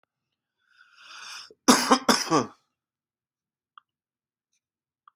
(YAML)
expert_labels:
- quality: good
  cough_type: wet
  dyspnea: false
  wheezing: false
  stridor: false
  choking: false
  congestion: false
  nothing: true
  diagnosis: lower respiratory tract infection
  severity: mild
age: 23
gender: male
respiratory_condition: true
fever_muscle_pain: false
status: symptomatic